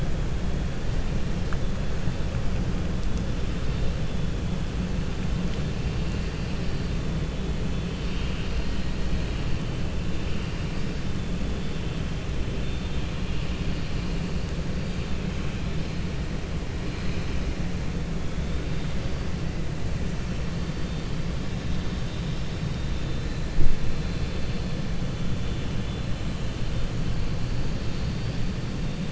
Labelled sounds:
12.6	13.1	vessel noise, 2.7 to 4.5 kHz

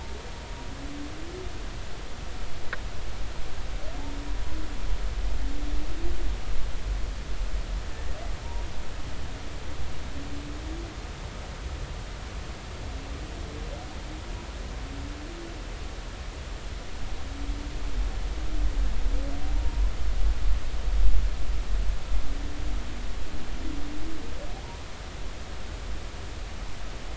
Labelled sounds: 19.6	19.9	humpback whale, 0.90 to 1.1 kHz

